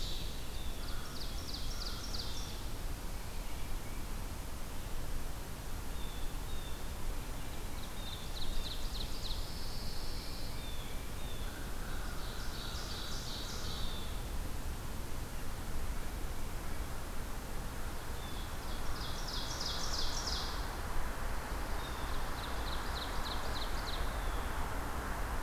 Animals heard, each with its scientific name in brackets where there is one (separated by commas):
American Crow (Corvus brachyrhynchos), Blue Jay (Cyanocitta cristata), Tufted Titmouse (Baeolophus bicolor), Ovenbird (Seiurus aurocapilla), Pine Warbler (Setophaga pinus)